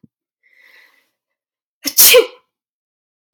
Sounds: Sneeze